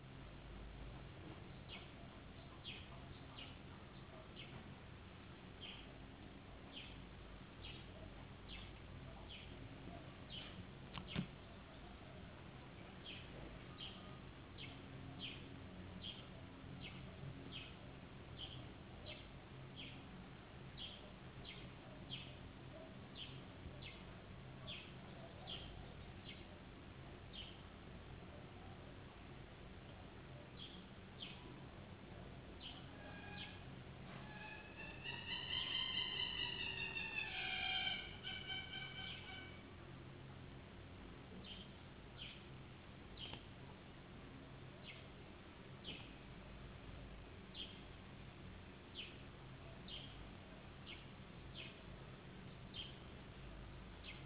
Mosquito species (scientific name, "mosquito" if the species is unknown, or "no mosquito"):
no mosquito